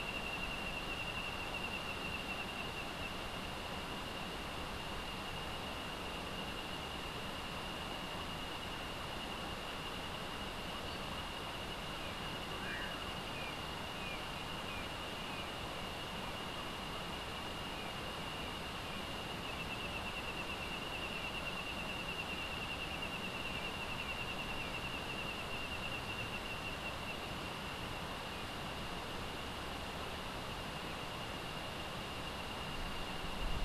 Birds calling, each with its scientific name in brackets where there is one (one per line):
Common Pauraque (Nyctidromus albicollis)